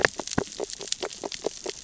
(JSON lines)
{"label": "biophony, grazing", "recorder": "SoundTrap 600 or HydroMoth"}